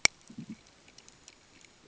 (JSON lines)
{"label": "ambient", "recorder": "HydroMoth"}